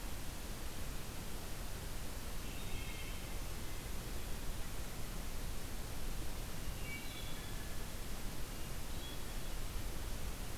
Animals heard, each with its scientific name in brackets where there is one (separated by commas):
Wood Thrush (Hylocichla mustelina)